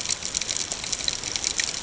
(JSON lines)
{"label": "ambient", "recorder": "HydroMoth"}